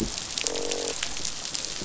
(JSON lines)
{"label": "biophony, croak", "recorder": "SoundTrap 500"}